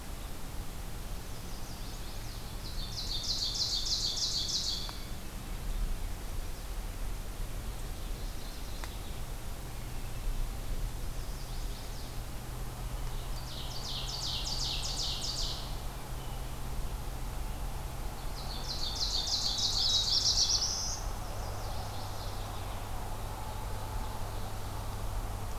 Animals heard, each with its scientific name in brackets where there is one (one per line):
Black-throated Blue Warbler (Setophaga caerulescens)
Chestnut-sided Warbler (Setophaga pensylvanica)
Ovenbird (Seiurus aurocapilla)
Mourning Warbler (Geothlypis philadelphia)